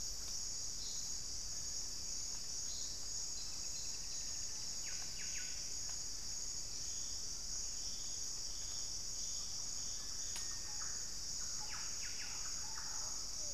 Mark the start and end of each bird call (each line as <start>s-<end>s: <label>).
3.0s-4.5s: Black-billed Thrush (Turdus ignobilis)
4.3s-6.1s: Buff-breasted Wren (Cantorchilus leucotis)
7.7s-13.4s: Thrush-like Wren (Campylorhynchus turdinus)
11.4s-12.6s: Buff-breasted Wren (Cantorchilus leucotis)
12.4s-13.5s: Pale-vented Pigeon (Patagioenas cayennensis)